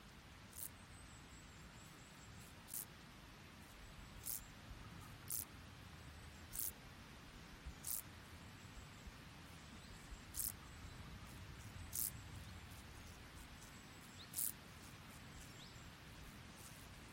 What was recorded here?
Chorthippus brunneus, an orthopteran